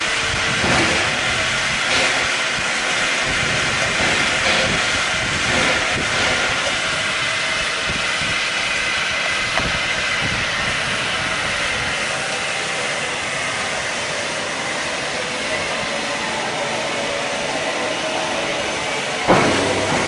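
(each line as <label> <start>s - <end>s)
Noises from a steam locomotive. 0.0s - 20.1s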